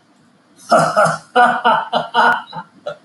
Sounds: Laughter